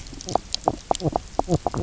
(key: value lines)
label: biophony, knock croak
recorder: SoundTrap 300